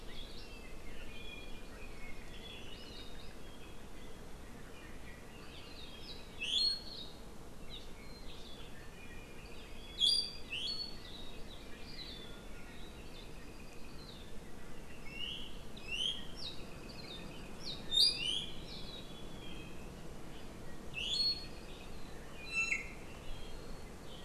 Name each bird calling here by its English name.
Apapane, House Finch, Iiwi